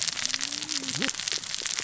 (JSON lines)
{"label": "biophony, cascading saw", "recorder": "SoundTrap 600 or HydroMoth"}